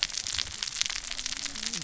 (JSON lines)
{"label": "biophony, cascading saw", "recorder": "SoundTrap 600 or HydroMoth"}